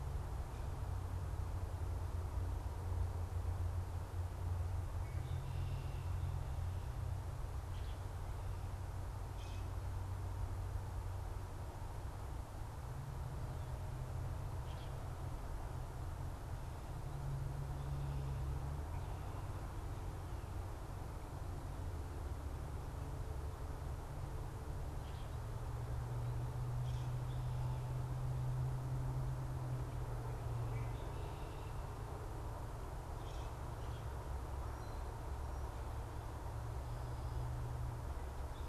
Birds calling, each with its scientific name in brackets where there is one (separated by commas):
Common Grackle (Quiscalus quiscula), Red-winged Blackbird (Agelaius phoeniceus)